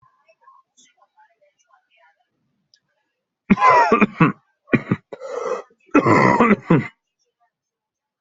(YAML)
expert_labels:
- quality: good
  cough_type: dry
  dyspnea: false
  wheezing: true
  stridor: false
  choking: false
  congestion: false
  nothing: false
  diagnosis: lower respiratory tract infection
  severity: mild
age: 19
gender: male
respiratory_condition: true
fever_muscle_pain: true
status: symptomatic